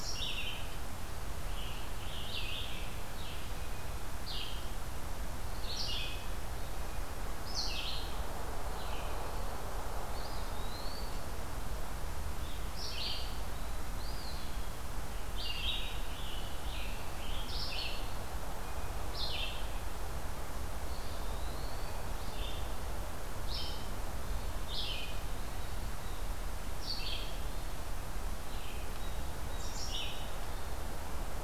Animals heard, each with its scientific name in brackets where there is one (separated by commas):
Eastern Wood-Pewee (Contopus virens), Red-eyed Vireo (Vireo olivaceus), Scarlet Tanager (Piranga olivacea), Blue Jay (Cyanocitta cristata)